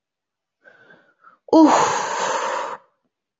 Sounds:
Sigh